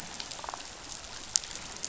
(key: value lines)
label: biophony, damselfish
recorder: SoundTrap 500